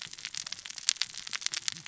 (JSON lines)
{"label": "biophony, cascading saw", "recorder": "SoundTrap 600 or HydroMoth"}